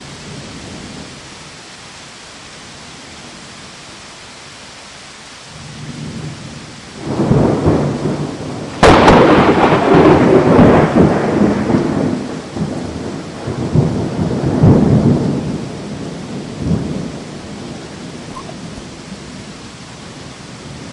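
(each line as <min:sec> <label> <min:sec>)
0:00.0 A distant rumble of thunder is faintly audible. 0:01.2
0:00.0 Soft, continuous rainfall. 0:20.9
0:05.6 A distant rumble of thunder is faintly audible. 0:06.7
0:06.9 Moderately loud thunder. 0:08.8
0:08.8 A loud thunderclap followed by prolonged echo and reverberation. 0:17.4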